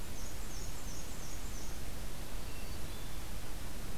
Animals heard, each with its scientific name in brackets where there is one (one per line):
Hermit Thrush (Catharus guttatus)
Black-and-white Warbler (Mniotilta varia)